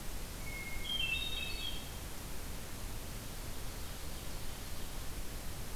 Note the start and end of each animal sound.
0.3s-2.1s: Hermit Thrush (Catharus guttatus)
3.3s-4.9s: Ovenbird (Seiurus aurocapilla)

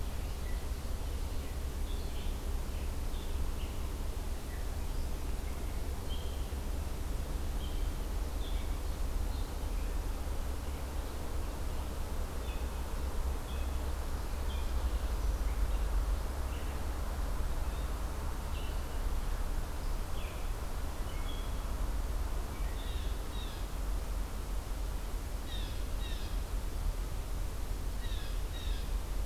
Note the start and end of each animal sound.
0.0s-22.9s: Red-eyed Vireo (Vireo olivaceus)
22.8s-23.8s: Blue Jay (Cyanocitta cristata)
25.4s-26.4s: Blue Jay (Cyanocitta cristata)
27.8s-28.9s: Blue Jay (Cyanocitta cristata)

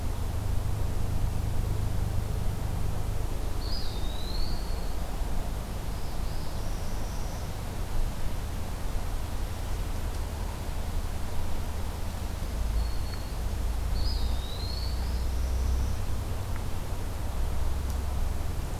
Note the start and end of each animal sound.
3.5s-4.9s: Eastern Wood-Pewee (Contopus virens)
5.7s-7.8s: Northern Parula (Setophaga americana)
12.0s-13.5s: Black-throated Green Warbler (Setophaga virens)
13.8s-15.3s: Eastern Wood-Pewee (Contopus virens)
15.2s-16.2s: Northern Parula (Setophaga americana)

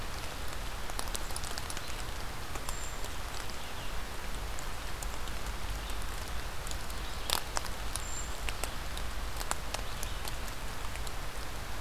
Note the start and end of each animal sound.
2.6s-3.1s: Brown Creeper (Certhia americana)
7.9s-8.4s: Brown Creeper (Certhia americana)

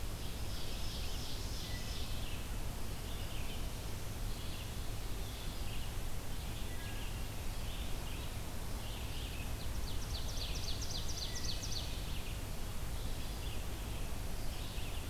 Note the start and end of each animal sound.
0.0s-2.0s: Ovenbird (Seiurus aurocapilla)
0.0s-15.1s: Red-eyed Vireo (Vireo olivaceus)
1.6s-2.3s: Wood Thrush (Hylocichla mustelina)
6.7s-7.2s: Wood Thrush (Hylocichla mustelina)
9.3s-11.9s: Ovenbird (Seiurus aurocapilla)
11.1s-11.8s: Wood Thrush (Hylocichla mustelina)

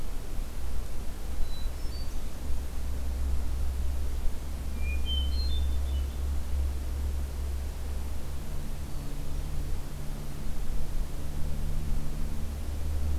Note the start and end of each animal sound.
1.4s-2.3s: Hermit Thrush (Catharus guttatus)
4.7s-6.2s: Hermit Thrush (Catharus guttatus)
8.8s-9.6s: Hermit Thrush (Catharus guttatus)

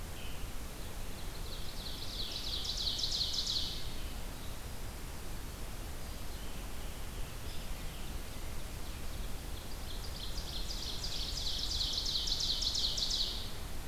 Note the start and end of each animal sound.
0.0s-0.5s: unidentified call
0.9s-4.2s: Ovenbird (Seiurus aurocapilla)
6.1s-8.1s: Scarlet Tanager (Piranga olivacea)
7.6s-13.5s: Ovenbird (Seiurus aurocapilla)

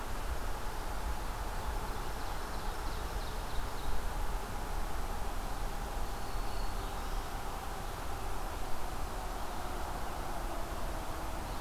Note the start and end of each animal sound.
1.6s-4.3s: Ovenbird (Seiurus aurocapilla)
5.8s-7.4s: Black-throated Green Warbler (Setophaga virens)

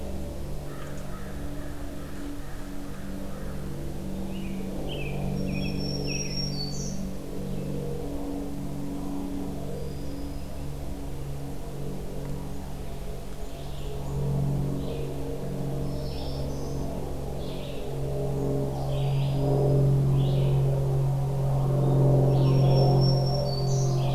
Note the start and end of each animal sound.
0.6s-3.7s: American Crow (Corvus brachyrhynchos)
4.2s-6.5s: American Robin (Turdus migratorius)
5.1s-7.3s: Black-throated Green Warbler (Setophaga virens)
9.6s-10.8s: Eastern Wood-Pewee (Contopus virens)
13.1s-24.1s: Red-eyed Vireo (Vireo olivaceus)
15.7s-17.0s: Black-throated Green Warbler (Setophaga virens)
18.8s-19.9s: Eastern Wood-Pewee (Contopus virens)
22.2s-24.1s: Black-throated Green Warbler (Setophaga virens)

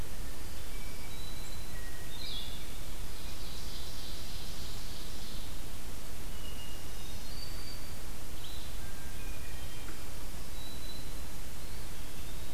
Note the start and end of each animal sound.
0.0s-12.5s: Blue-headed Vireo (Vireo solitarius)
0.2s-1.9s: Black-throated Green Warbler (Setophaga virens)
0.3s-1.2s: Hermit Thrush (Catharus guttatus)
1.6s-2.8s: Hermit Thrush (Catharus guttatus)
2.9s-5.6s: Ovenbird (Seiurus aurocapilla)
6.2s-7.5s: Hermit Thrush (Catharus guttatus)
6.4s-8.2s: Black-throated Green Warbler (Setophaga virens)
8.7s-10.1s: Hermit Thrush (Catharus guttatus)
9.8s-11.3s: Black-throated Green Warbler (Setophaga virens)
11.5s-12.5s: Eastern Wood-Pewee (Contopus virens)

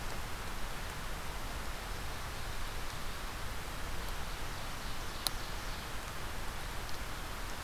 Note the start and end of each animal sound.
3.5s-6.1s: Ovenbird (Seiurus aurocapilla)

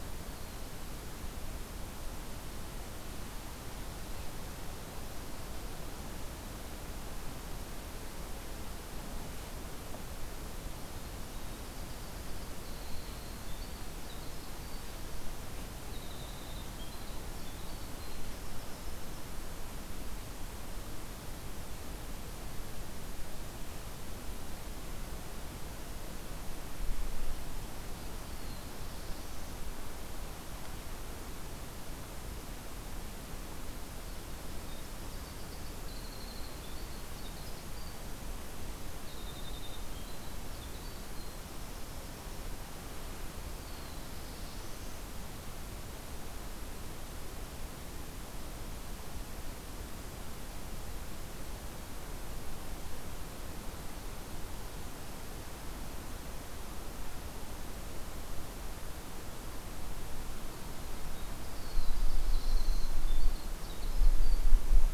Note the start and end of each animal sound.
0.0s-1.4s: Black-throated Blue Warbler (Setophaga caerulescens)
11.4s-15.0s: Winter Wren (Troglodytes hiemalis)
15.8s-19.4s: Winter Wren (Troglodytes hiemalis)
28.2s-29.6s: Black-throated Blue Warbler (Setophaga caerulescens)
34.5s-38.1s: Winter Wren (Troglodytes hiemalis)
39.1s-42.6s: Winter Wren (Troglodytes hiemalis)
43.4s-45.1s: Black-throated Blue Warbler (Setophaga caerulescens)
61.0s-64.5s: Winter Wren (Troglodytes hiemalis)
61.4s-63.0s: Black-throated Blue Warbler (Setophaga caerulescens)

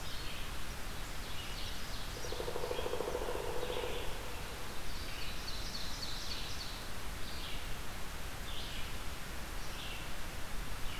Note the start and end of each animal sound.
0.0s-11.0s: Red-eyed Vireo (Vireo olivaceus)
1.0s-2.4s: Ovenbird (Seiurus aurocapilla)
2.0s-4.2s: Pileated Woodpecker (Dryocopus pileatus)
4.7s-6.8s: Ovenbird (Seiurus aurocapilla)

